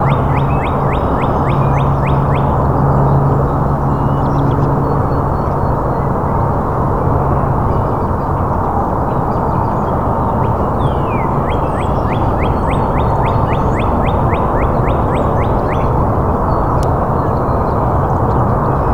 Are there highway noises?
yes